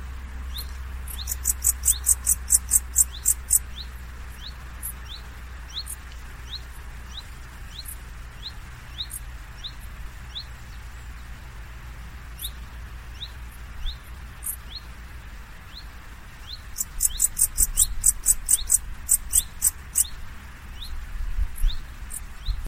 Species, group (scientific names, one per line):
Pholidoptera aptera
Orthoptera